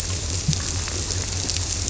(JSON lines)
{"label": "biophony", "recorder": "SoundTrap 300"}